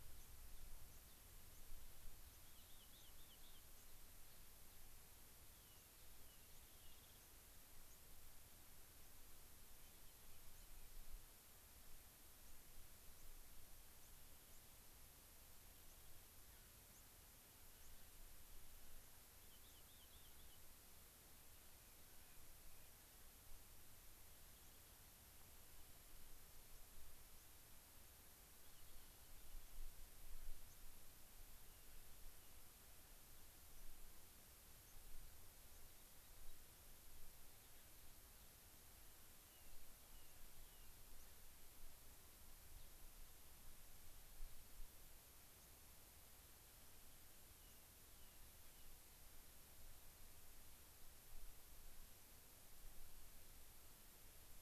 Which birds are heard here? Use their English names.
White-crowned Sparrow, Gray-crowned Rosy-Finch, Rock Wren, unidentified bird